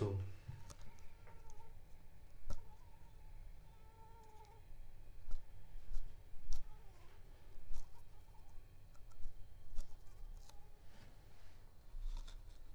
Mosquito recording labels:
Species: Anopheles arabiensis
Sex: female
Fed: unfed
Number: one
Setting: cup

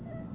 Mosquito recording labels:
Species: Aedes albopictus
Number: one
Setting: insect culture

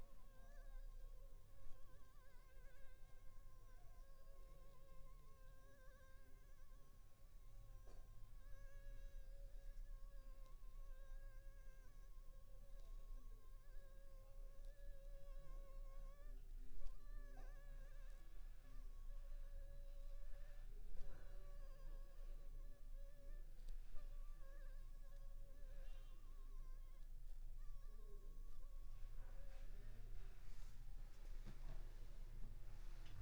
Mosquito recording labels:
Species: Anopheles funestus s.s.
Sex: female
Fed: unfed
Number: one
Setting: cup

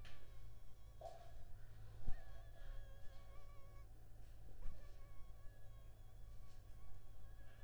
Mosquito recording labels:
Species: Anopheles funestus s.l.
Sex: female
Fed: blood-fed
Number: one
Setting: cup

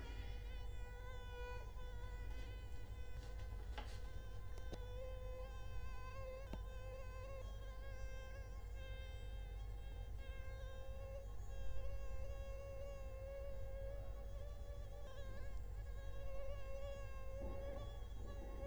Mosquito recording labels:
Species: Culex quinquefasciatus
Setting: cup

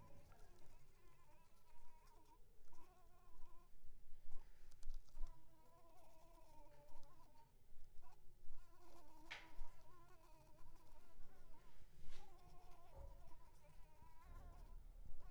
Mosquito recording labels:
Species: Anopheles arabiensis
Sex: female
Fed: unfed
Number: one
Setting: cup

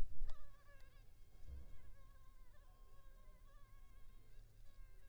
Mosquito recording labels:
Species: Culex pipiens complex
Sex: female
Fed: unfed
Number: one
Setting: cup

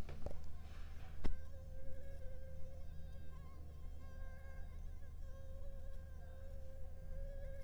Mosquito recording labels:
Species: Anopheles arabiensis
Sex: female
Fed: unfed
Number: one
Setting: cup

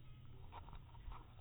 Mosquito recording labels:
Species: mosquito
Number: one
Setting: cup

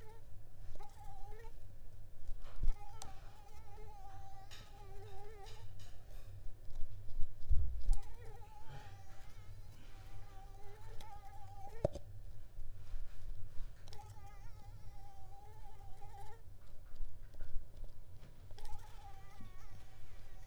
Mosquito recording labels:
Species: Mansonia uniformis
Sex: female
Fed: unfed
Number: one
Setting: cup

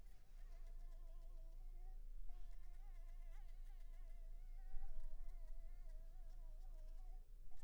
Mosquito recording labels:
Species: Anopheles maculipalpis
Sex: female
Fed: unfed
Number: one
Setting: cup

